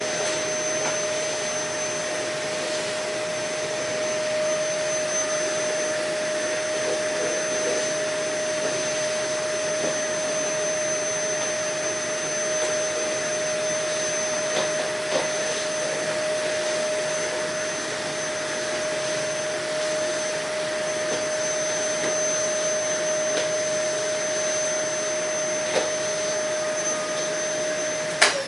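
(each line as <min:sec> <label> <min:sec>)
0:00.0 A vacuum cleaner runs continuously. 0:28.2
0:28.2 A vacuum cleaner is switched off. 0:28.5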